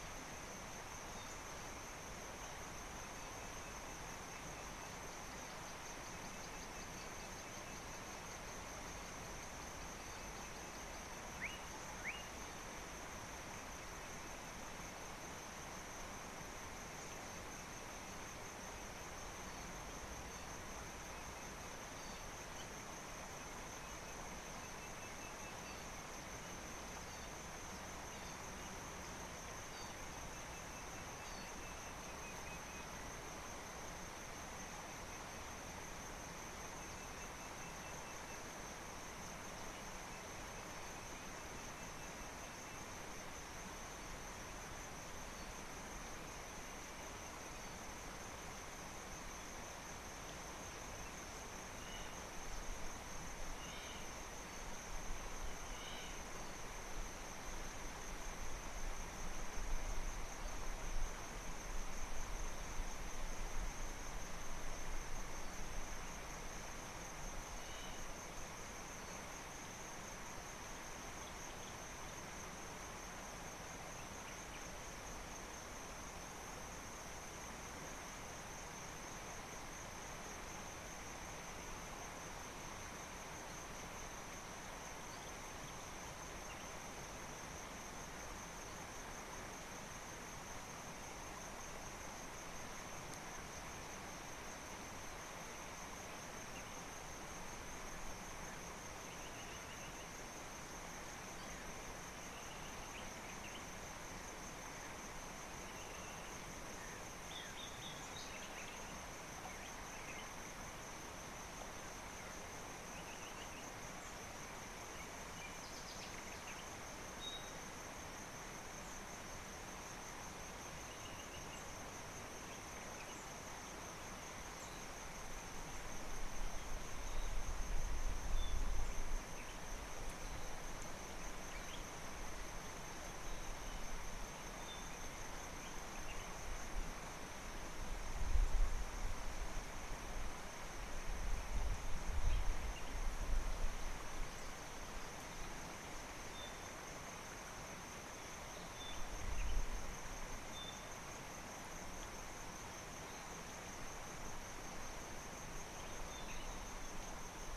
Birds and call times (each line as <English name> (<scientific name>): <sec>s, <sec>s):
Slate-colored Boubou (Laniarius funebris): 11.5s
Hamerkop (Scopus umbretta): 56.0s